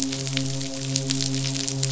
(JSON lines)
{"label": "biophony, midshipman", "recorder": "SoundTrap 500"}